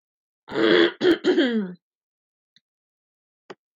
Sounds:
Throat clearing